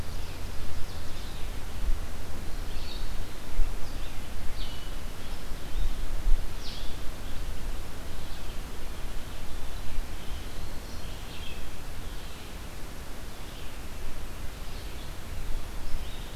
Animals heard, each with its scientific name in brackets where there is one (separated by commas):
Ovenbird (Seiurus aurocapilla), Blue-headed Vireo (Vireo solitarius), Black-throated Green Warbler (Setophaga virens), Red-eyed Vireo (Vireo olivaceus)